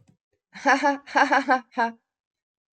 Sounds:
Laughter